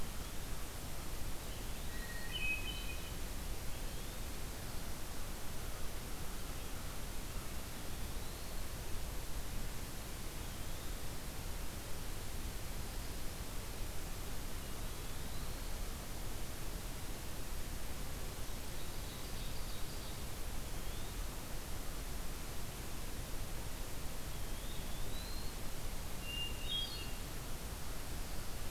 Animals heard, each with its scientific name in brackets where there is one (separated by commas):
Hermit Thrush (Catharus guttatus), Ovenbird (Seiurus aurocapilla), Eastern Wood-Pewee (Contopus virens)